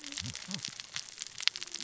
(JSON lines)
{"label": "biophony, cascading saw", "recorder": "SoundTrap 600 or HydroMoth"}